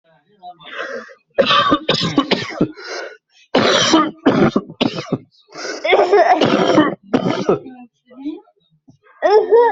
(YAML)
expert_labels:
- quality: good
  cough_type: dry
  dyspnea: false
  wheezing: false
  stridor: false
  choking: false
  congestion: false
  nothing: true
  diagnosis: COVID-19
  severity: severe
age: 43
gender: male
respiratory_condition: false
fever_muscle_pain: false
status: healthy